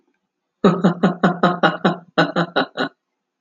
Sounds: Laughter